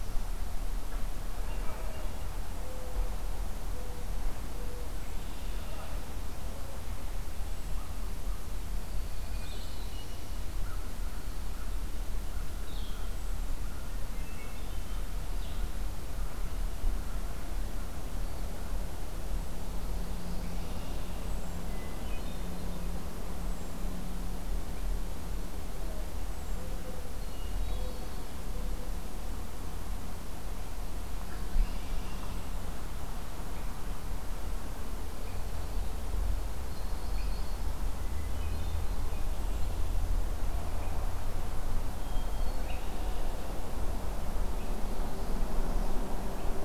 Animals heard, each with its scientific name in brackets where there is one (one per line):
Hermit Thrush (Catharus guttatus)
Blue-headed Vireo (Vireo solitarius)
American Crow (Corvus brachyrhynchos)
Northern Parula (Setophaga americana)
Yellow-rumped Warbler (Setophaga coronata)
Red-winged Blackbird (Agelaius phoeniceus)